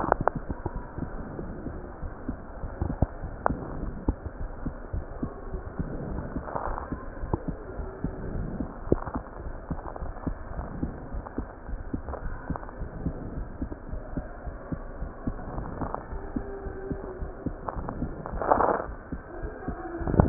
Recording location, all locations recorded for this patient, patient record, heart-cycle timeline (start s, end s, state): pulmonary valve (PV)
aortic valve (AV)+pulmonary valve (PV)
#Age: nan
#Sex: Female
#Height: nan
#Weight: nan
#Pregnancy status: True
#Murmur: Absent
#Murmur locations: nan
#Most audible location: nan
#Systolic murmur timing: nan
#Systolic murmur shape: nan
#Systolic murmur grading: nan
#Systolic murmur pitch: nan
#Systolic murmur quality: nan
#Diastolic murmur timing: nan
#Diastolic murmur shape: nan
#Diastolic murmur grading: nan
#Diastolic murmur pitch: nan
#Diastolic murmur quality: nan
#Outcome: Normal
#Campaign: 2015 screening campaign
0.00	9.29	unannotated
9.29	9.42	diastole
9.42	9.56	S1
9.56	9.70	systole
9.70	9.78	S2
9.78	10.02	diastole
10.02	10.14	S1
10.14	10.25	systole
10.25	10.38	S2
10.38	10.58	diastole
10.58	10.70	S1
10.70	10.80	systole
10.80	10.92	S2
10.92	11.13	diastole
11.13	11.24	S1
11.24	11.34	systole
11.34	11.46	S2
11.46	11.68	diastole
11.68	11.80	S1
11.80	11.92	systole
11.92	12.06	S2
12.06	12.24	diastole
12.24	12.38	S1
12.38	12.46	systole
12.46	12.58	S2
12.58	12.78	diastole
12.78	12.88	S1
12.88	13.00	systole
13.00	13.14	S2
13.14	13.36	diastole
13.36	13.48	S1
13.48	13.60	systole
13.60	13.70	S2
13.70	13.89	diastole
13.89	14.02	S1
14.02	14.14	systole
14.14	14.26	S2
14.26	14.48	diastole
14.48	14.56	S1
14.56	14.70	systole
14.70	14.80	S2
14.80	14.98	diastole
14.98	15.12	S1
15.12	15.24	systole
15.24	15.37	S2
15.37	15.56	diastole
15.56	15.68	S1
15.68	15.80	systole
15.80	15.92	S2
15.92	16.12	diastole
16.12	16.24	S1
16.24	16.34	systole
16.34	16.46	S2
16.46	16.64	diastole
16.64	16.74	S1
16.74	16.89	systole
16.89	16.99	S2
16.99	17.20	diastole
17.20	17.32	S1
17.32	17.44	systole
17.44	17.54	S2
17.54	17.77	diastole
17.77	20.29	unannotated